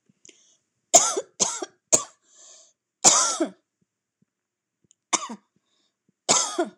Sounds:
Cough